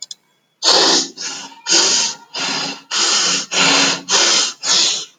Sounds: Sniff